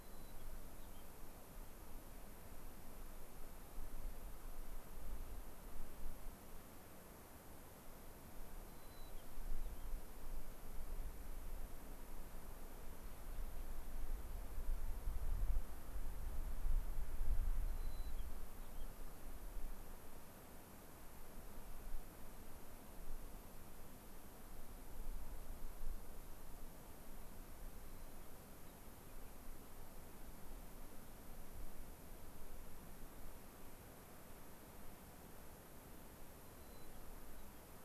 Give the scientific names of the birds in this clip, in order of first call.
Zonotrichia leucophrys